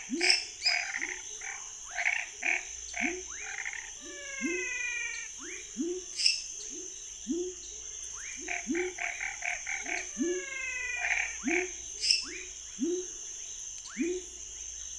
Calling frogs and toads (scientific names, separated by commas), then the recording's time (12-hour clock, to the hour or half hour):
Boana raniceps, Leptodactylus labyrinthicus, Dendropsophus minutus, Leptodactylus fuscus, Dendropsophus nanus, Physalaemus albonotatus
7:30pm